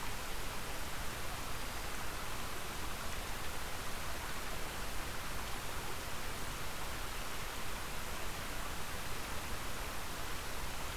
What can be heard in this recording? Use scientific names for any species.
forest ambience